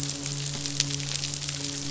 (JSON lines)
{"label": "biophony, midshipman", "recorder": "SoundTrap 500"}